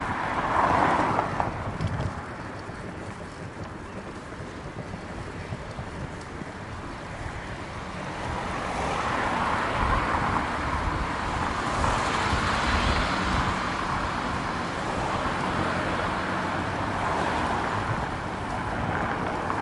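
8.0s Cars passing by. 19.6s

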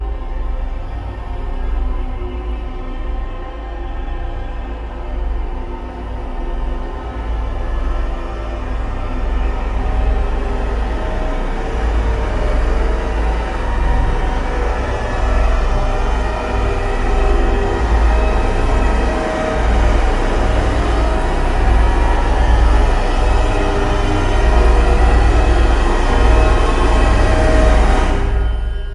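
0.1s Creepy, out-of-tune violin sounds gradually getting louder. 28.8s

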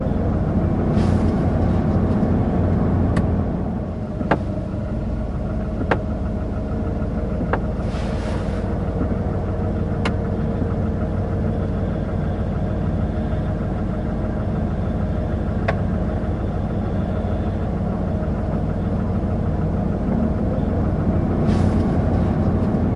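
0.1s A continuous, deep engine hum. 23.0s
2.9s Mechanical clicks and knocks. 8.2s
9.8s A single mechanical click. 10.5s
15.4s A single mechanical click. 16.1s

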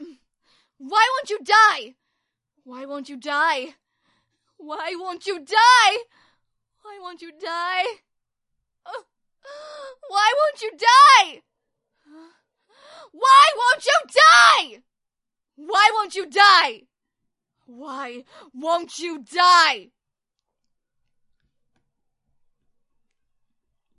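0.0s A woman sobs in despair. 0.2s
0.8s A woman cries out in despair. 2.0s
2.6s A woman cries out softly and desperately. 3.8s
4.5s A woman cries out in growing despair. 6.1s
6.8s A woman cries out softly and desperately. 8.1s
8.8s A woman sobs in despair. 9.1s
9.4s A woman cries out in growing despair. 11.5s
12.0s A woman sobs in despair. 12.4s
12.8s A woman screams angrily and desperately. 14.9s
15.5s A woman screams angrily and desperately. 16.9s
17.6s A woman cries out in growing despair. 19.9s
17.6s A woman sobs in despair. 19.9s

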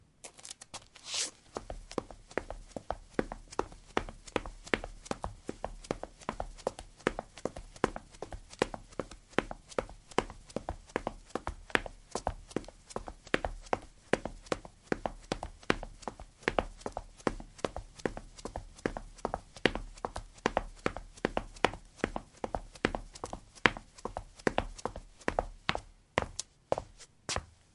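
0.0s Rhythmic footwork produces clear percussive sounds on a hard surface. 27.7s

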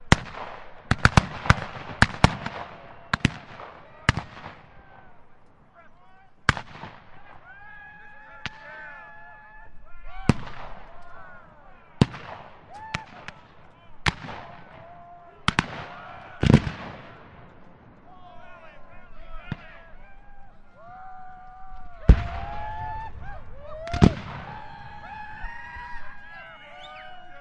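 0.0s Gunshots firing repeatedly. 4.9s
2.0s People yelling from a far distance. 5.1s
6.1s A gun fires once. 7.4s
7.1s People yelling from a far distance. 10.3s
9.9s A gun fires once. 11.2s
11.9s Gunshots firing repeatedly. 17.3s
12.5s People yelling from a far distance. 27.4s
21.4s Loud gunshots sound twice. 24.8s

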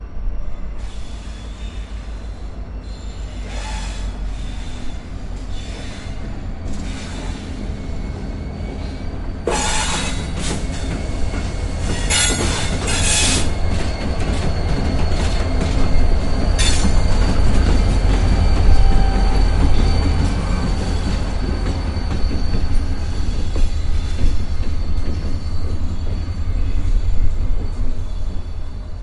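0.0s A railroad screeches. 9.3s
9.4s A train screeches loudly and then fades away. 29.0s

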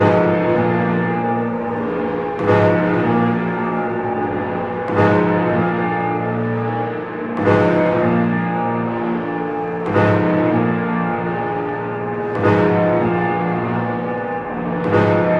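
0.0s Low-pitched melancholic piano chords are played repeatedly, echoing in a room. 15.4s

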